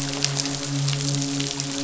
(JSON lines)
{"label": "biophony, midshipman", "recorder": "SoundTrap 500"}